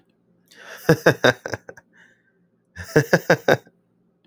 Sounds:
Laughter